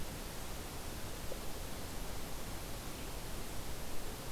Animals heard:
forest ambience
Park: Katahdin Woods and Waters National Monument